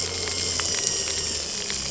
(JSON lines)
{"label": "anthrophony, boat engine", "recorder": "SoundTrap 300"}